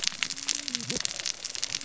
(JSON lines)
{"label": "biophony, cascading saw", "recorder": "SoundTrap 600 or HydroMoth"}